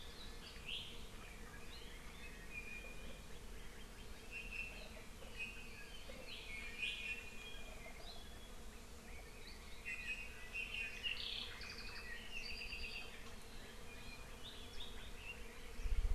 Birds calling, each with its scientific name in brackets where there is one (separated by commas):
Apapane (Himatione sanguinea)